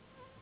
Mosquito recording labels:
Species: Anopheles gambiae s.s.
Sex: female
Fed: unfed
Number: one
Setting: insect culture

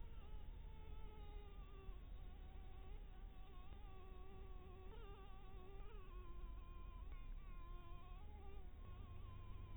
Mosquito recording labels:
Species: Anopheles dirus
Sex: female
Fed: blood-fed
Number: one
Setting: cup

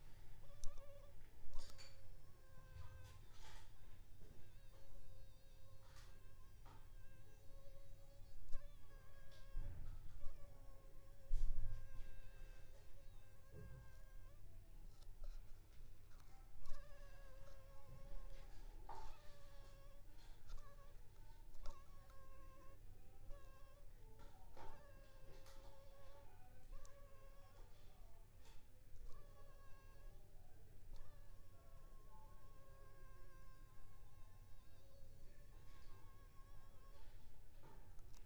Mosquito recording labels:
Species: Anopheles funestus s.s.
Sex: female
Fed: unfed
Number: one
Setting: cup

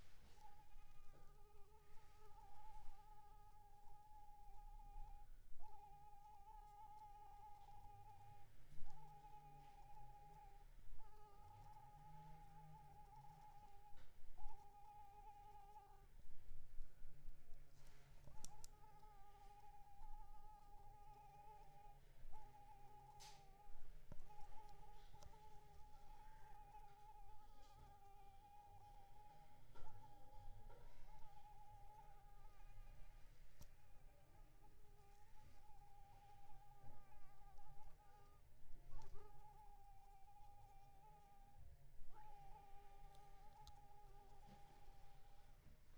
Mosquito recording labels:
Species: Anopheles arabiensis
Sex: female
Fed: unfed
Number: one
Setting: cup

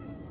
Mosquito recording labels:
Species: Culex quinquefasciatus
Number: one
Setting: insect culture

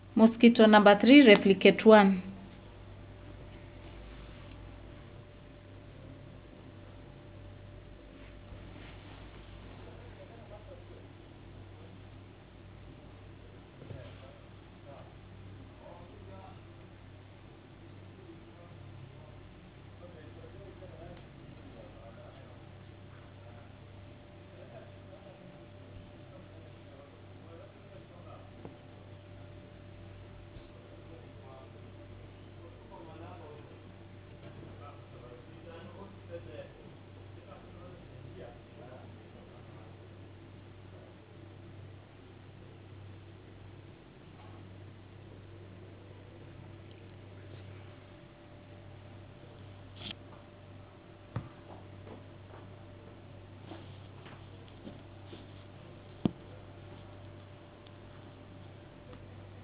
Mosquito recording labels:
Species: no mosquito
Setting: insect culture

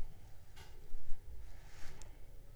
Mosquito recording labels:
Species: Anopheles arabiensis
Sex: female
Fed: unfed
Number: one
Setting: cup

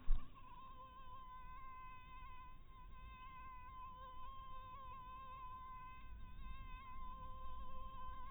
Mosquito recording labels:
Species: mosquito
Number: one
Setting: cup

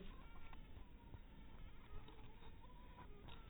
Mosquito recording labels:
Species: mosquito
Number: one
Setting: cup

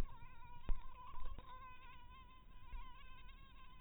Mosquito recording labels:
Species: mosquito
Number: one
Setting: cup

